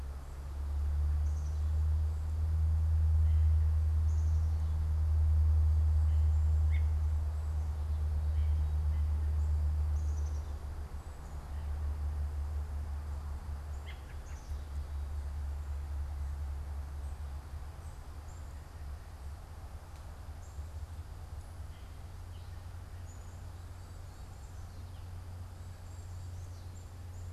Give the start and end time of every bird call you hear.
[1.10, 4.60] Black-capped Chickadee (Poecile atricapillus)
[6.50, 9.40] American Robin (Turdus migratorius)
[9.80, 10.50] Black-capped Chickadee (Poecile atricapillus)
[14.10, 14.50] American Robin (Turdus migratorius)
[14.20, 27.30] Black-capped Chickadee (Poecile atricapillus)

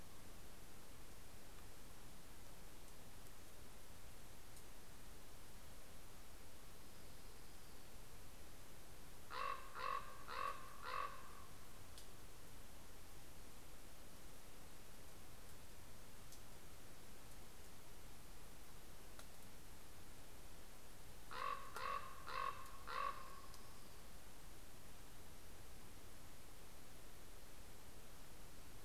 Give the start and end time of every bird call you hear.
[8.90, 11.90] Common Raven (Corvus corax)
[21.10, 24.10] Common Raven (Corvus corax)

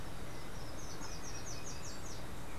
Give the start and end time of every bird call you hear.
[0.00, 2.50] Slate-throated Redstart (Myioborus miniatus)

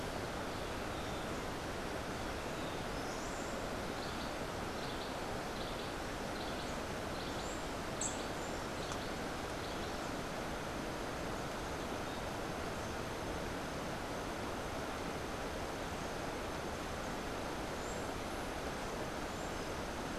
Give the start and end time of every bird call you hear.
[3.96, 10.06] Cabanis's Wren (Cantorchilus modestus)
[7.86, 8.16] White-eared Ground-Sparrow (Melozone leucotis)

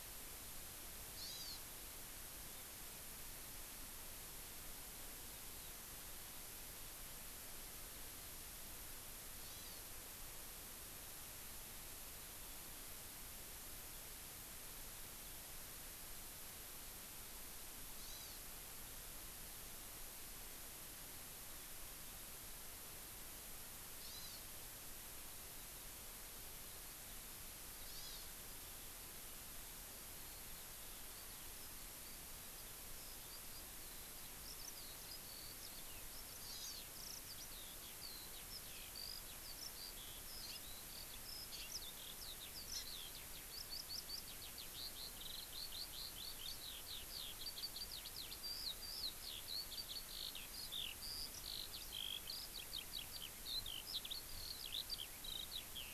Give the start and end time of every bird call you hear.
[1.10, 1.60] Hawaii Amakihi (Chlorodrepanis virens)
[9.40, 9.80] Hawaii Amakihi (Chlorodrepanis virens)
[18.00, 18.40] Hawaii Amakihi (Chlorodrepanis virens)
[24.00, 24.40] Hawaii Amakihi (Chlorodrepanis virens)
[27.90, 28.30] Hawaii Amakihi (Chlorodrepanis virens)
[30.10, 55.93] Eurasian Skylark (Alauda arvensis)
[36.50, 36.80] Hawaii Amakihi (Chlorodrepanis virens)

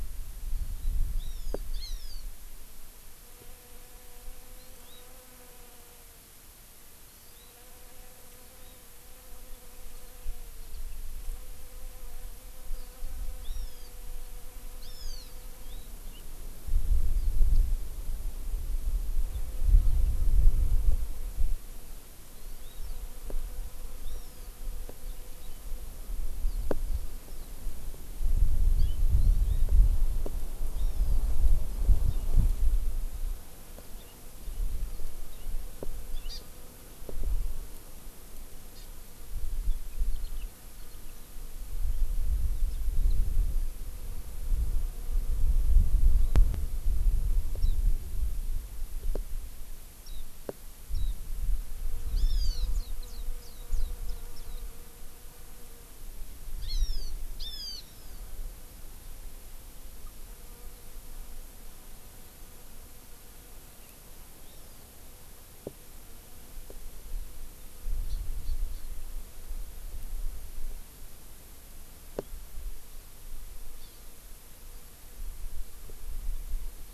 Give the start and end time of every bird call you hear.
[1.15, 2.25] Hawaii Amakihi (Chlorodrepanis virens)
[4.55, 5.05] Hawaii Amakihi (Chlorodrepanis virens)
[7.05, 7.55] Hawaii Amakihi (Chlorodrepanis virens)
[13.45, 13.95] Hawaii Amakihi (Chlorodrepanis virens)
[14.85, 15.35] Hawaii Amakihi (Chlorodrepanis virens)
[22.35, 22.85] Hawaii Amakihi (Chlorodrepanis virens)
[24.05, 24.45] Hawaii Amakihi (Chlorodrepanis virens)
[29.05, 29.65] Hawaii Amakihi (Chlorodrepanis virens)
[30.75, 31.25] Hawaii Amakihi (Chlorodrepanis virens)
[36.25, 36.45] Hawaii Amakihi (Chlorodrepanis virens)
[38.75, 38.85] Hawaii Amakihi (Chlorodrepanis virens)
[47.55, 47.75] Warbling White-eye (Zosterops japonicus)
[50.05, 50.25] Warbling White-eye (Zosterops japonicus)
[50.95, 51.15] Warbling White-eye (Zosterops japonicus)
[52.15, 52.75] Hawaii Amakihi (Chlorodrepanis virens)
[52.75, 54.65] Warbling White-eye (Zosterops japonicus)
[56.55, 58.25] Hawaii Amakihi (Chlorodrepanis virens)
[64.45, 64.85] Hawaii Amakihi (Chlorodrepanis virens)
[68.05, 68.15] Hawaii Amakihi (Chlorodrepanis virens)
[68.45, 68.85] Hawaii Amakihi (Chlorodrepanis virens)
[73.75, 74.05] Hawaii Amakihi (Chlorodrepanis virens)

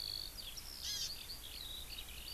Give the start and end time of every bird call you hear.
[0.00, 2.33] Eurasian Skylark (Alauda arvensis)
[0.72, 1.22] Hawaii Amakihi (Chlorodrepanis virens)

